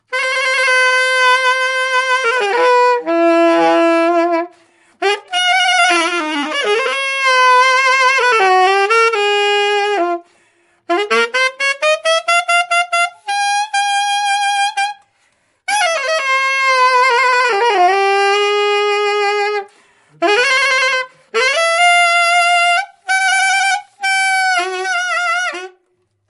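0.0s High-pitched saxophone sounds that are not very rhythmic. 26.3s

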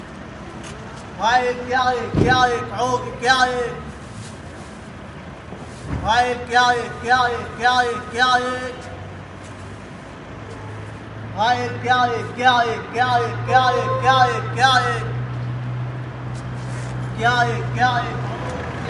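0.0s A car engine hums softly in the background. 18.9s
1.2s A man beckons in Arabic with a loud, rhythmic, commanding voice. 3.8s
2.1s A car boot slams shut with a deep, heavy thud. 2.6s
5.9s A man beckons in Arabic with a loud, rhythmic, commanding voice. 8.7s
11.4s A man beckons in Arabic with a loud, rhythmic, commanding voice. 15.1s
13.5s A car horn beeps sharply with a short, high-pitched sound in the distance. 13.8s
17.1s A man beckons rhythmically and loudly in Arabic with a gradually decreasing, commanding voice. 18.2s

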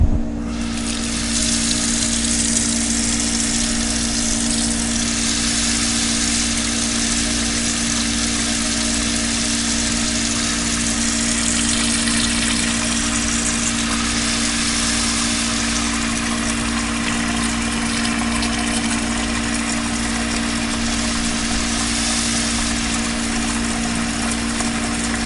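0.0s A faint whirring sound of an exhaust fan running in the background. 25.3s
1.3s Water falling on a flat surface. 25.3s

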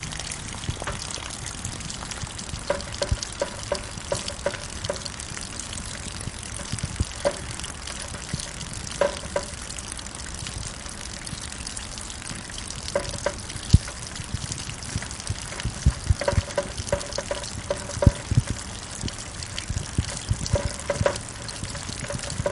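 0.0s Rain falling with water dripping from a water spout. 22.5s
2.6s Rain falls outdoors with water dripping sharply from a water spout seven times. 5.0s
7.2s Rain falling outdoors with water dripping sharply and distinctly from a spout. 7.4s
9.0s Rain falling outdoors with two sharp, distinct water drops from a water spout. 9.5s
12.8s Rain falling outdoors with water dripping from a spout, including two sharp, distinct drops. 13.4s
16.1s Rain falling outdoors with water dripping sharply and distinctly from a water spout. 18.6s
20.5s Rain with water dripping from a spout, producing three sharp distinct drops. 21.2s

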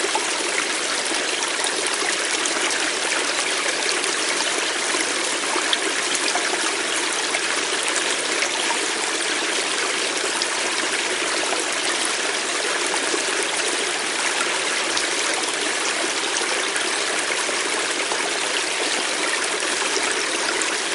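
0.0s A water stream flows loudly and irregularly. 20.9s

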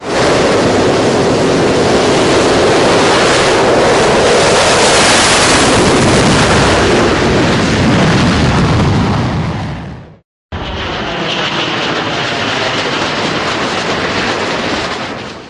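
0.0s A jet engine produces a loud, continuous roaring sound that gradually fades as it moves away. 10.3s
10.5s A jet engine produces a long, steady whooshing sound. 15.5s

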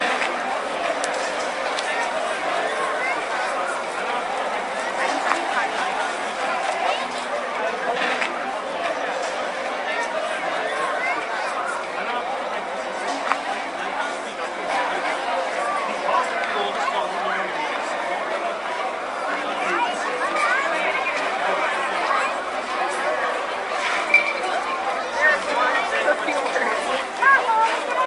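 0.0s People are talking loudly in a crowd. 28.1s
23.9s A loud chime. 24.4s

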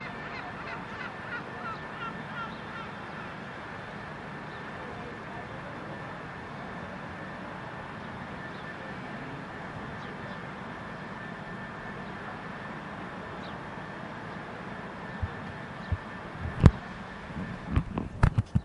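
0.0s Seagulls call sharply and echo in the distance. 3.6s
0.0s A cleaning vehicle operates outdoors, producing loud mechanical sounds. 18.6s
3.0s Birds sing quietly in the distance. 3.8s
4.5s Birds sing quietly in the distance. 5.2s
8.3s Birds sing quietly in the distance. 8.9s
9.9s Birds sing quietly in the distance. 10.6s
13.4s Birds sing quietly in the distance. 13.9s
15.9s Birds sing quietly in the distance. 16.1s
16.6s A microphone produces a subdued bumping noise from being touched. 16.7s
17.6s A microphone produces a subdued bumping noise from being touched. 18.6s

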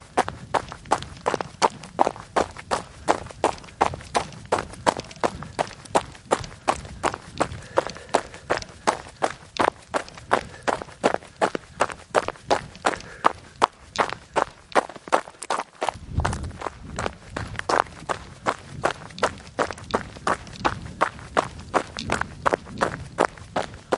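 0.0s A person is jogging steadily on a gravel path. 24.0s
7.2s A jogger is breathing audibly. 15.3s

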